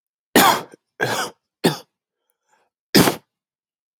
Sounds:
Cough